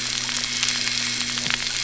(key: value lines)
label: anthrophony, boat engine
recorder: SoundTrap 300